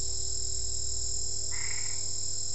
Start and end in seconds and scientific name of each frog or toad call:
1.5	2.1	Boana albopunctata